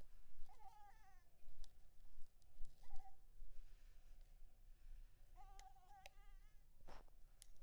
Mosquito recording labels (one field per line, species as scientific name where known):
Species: Anopheles maculipalpis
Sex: female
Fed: blood-fed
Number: one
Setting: cup